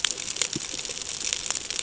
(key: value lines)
label: ambient
recorder: HydroMoth